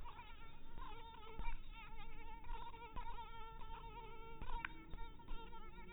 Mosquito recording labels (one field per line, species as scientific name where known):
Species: mosquito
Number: one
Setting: cup